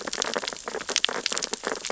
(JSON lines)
{"label": "biophony, sea urchins (Echinidae)", "recorder": "SoundTrap 600 or HydroMoth"}